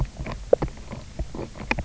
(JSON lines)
{"label": "biophony, knock croak", "recorder": "SoundTrap 300"}